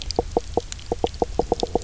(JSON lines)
{"label": "biophony, knock croak", "recorder": "SoundTrap 300"}